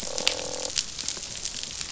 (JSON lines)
{"label": "biophony, croak", "recorder": "SoundTrap 500"}